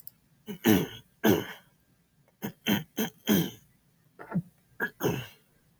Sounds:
Throat clearing